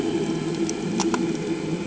{"label": "anthrophony, boat engine", "recorder": "HydroMoth"}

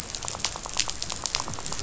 {"label": "biophony, rattle", "recorder": "SoundTrap 500"}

